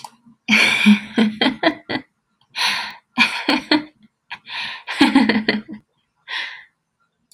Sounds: Laughter